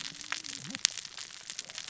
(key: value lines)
label: biophony, cascading saw
recorder: SoundTrap 600 or HydroMoth